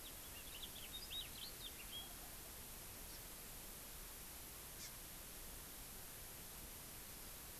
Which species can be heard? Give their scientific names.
Haemorhous mexicanus, Chlorodrepanis virens